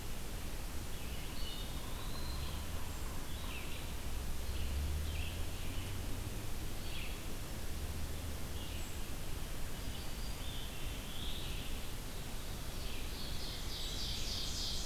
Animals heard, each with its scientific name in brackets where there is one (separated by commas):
Red-eyed Vireo (Vireo olivaceus), Black-throated Blue Warbler (Setophaga caerulescens), Ovenbird (Seiurus aurocapilla), Eastern Wood-Pewee (Contopus virens)